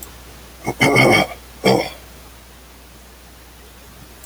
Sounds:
Throat clearing